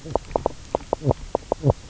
{"label": "biophony, knock croak", "recorder": "SoundTrap 300"}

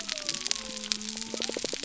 {"label": "biophony", "recorder": "SoundTrap 300"}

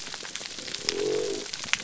{"label": "biophony", "recorder": "SoundTrap 300"}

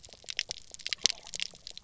{"label": "biophony, pulse", "recorder": "SoundTrap 300"}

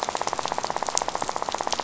{"label": "biophony, rattle", "recorder": "SoundTrap 500"}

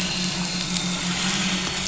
{"label": "anthrophony, boat engine", "recorder": "SoundTrap 500"}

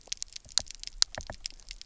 {"label": "biophony, knock", "recorder": "SoundTrap 300"}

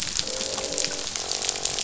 {"label": "biophony, croak", "recorder": "SoundTrap 500"}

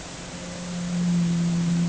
{"label": "anthrophony, boat engine", "recorder": "HydroMoth"}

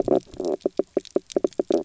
{"label": "biophony, knock croak", "recorder": "SoundTrap 300"}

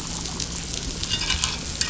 {"label": "anthrophony, boat engine", "recorder": "SoundTrap 500"}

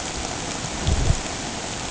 {"label": "ambient", "recorder": "HydroMoth"}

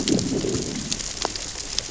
{"label": "biophony, growl", "recorder": "SoundTrap 600 or HydroMoth"}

